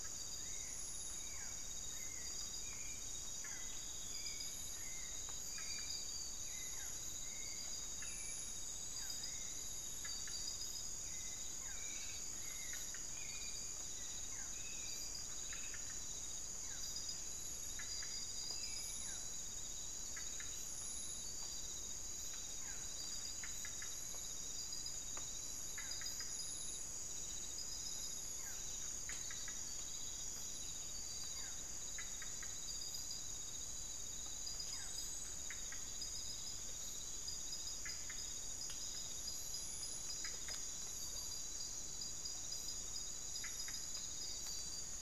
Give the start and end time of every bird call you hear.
[0.00, 19.11] Hauxwell's Thrush (Turdus hauxwelli)
[0.00, 35.21] Barred Forest-Falcon (Micrastur ruficollis)

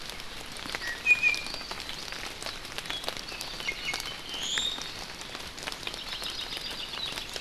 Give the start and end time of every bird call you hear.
[0.81, 1.51] Iiwi (Drepanis coccinea)
[3.61, 4.91] Iiwi (Drepanis coccinea)
[5.81, 7.11] Hawaii Creeper (Loxops mana)

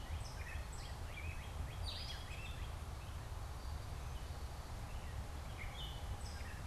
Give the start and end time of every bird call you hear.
[0.00, 2.85] Northern Cardinal (Cardinalis cardinalis)
[0.00, 6.66] Gray Catbird (Dumetella carolinensis)

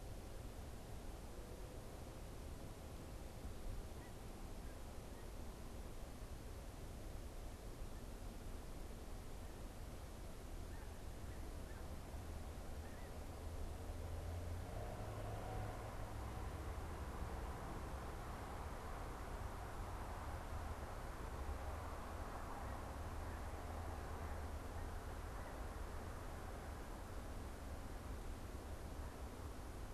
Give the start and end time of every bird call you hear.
[3.85, 13.55] Snow Goose (Anser caerulescens)

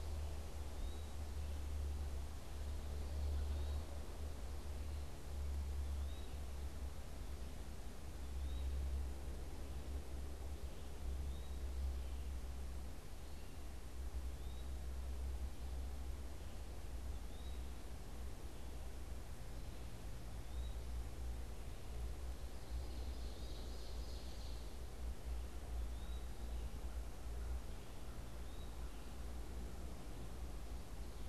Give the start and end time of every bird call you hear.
[0.60, 31.29] Eastern Wood-Pewee (Contopus virens)
[22.40, 24.80] Ovenbird (Seiurus aurocapilla)

